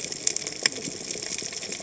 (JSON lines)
{"label": "biophony, cascading saw", "recorder": "HydroMoth"}